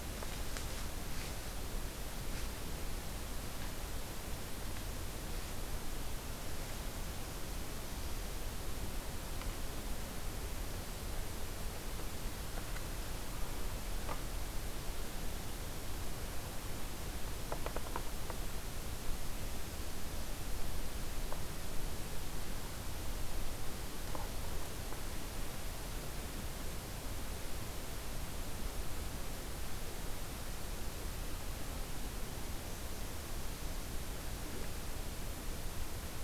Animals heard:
forest ambience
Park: Katahdin Woods and Waters National Monument